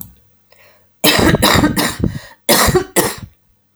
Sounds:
Cough